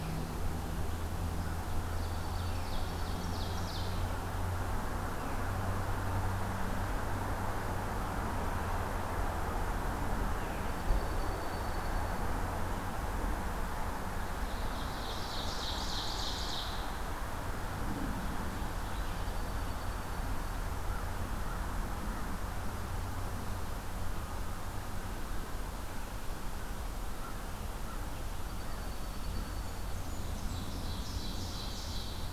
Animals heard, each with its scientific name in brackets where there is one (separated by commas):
Dark-eyed Junco (Junco hyemalis), Blackburnian Warbler (Setophaga fusca), Ovenbird (Seiurus aurocapilla)